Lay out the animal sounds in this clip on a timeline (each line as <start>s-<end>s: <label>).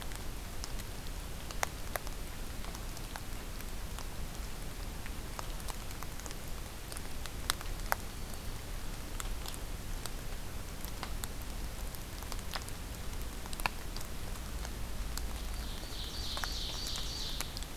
8.0s-8.7s: Black-throated Green Warbler (Setophaga virens)
15.4s-17.7s: Ovenbird (Seiurus aurocapilla)